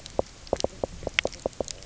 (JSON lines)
{"label": "biophony, knock", "recorder": "SoundTrap 300"}